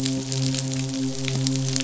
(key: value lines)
label: biophony, midshipman
recorder: SoundTrap 500